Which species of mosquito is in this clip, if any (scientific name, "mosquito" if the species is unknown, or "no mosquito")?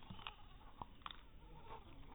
mosquito